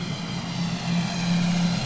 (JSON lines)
{"label": "anthrophony, boat engine", "recorder": "SoundTrap 500"}